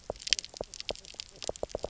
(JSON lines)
{"label": "biophony, knock croak", "recorder": "SoundTrap 300"}